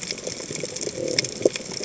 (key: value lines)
label: biophony
recorder: HydroMoth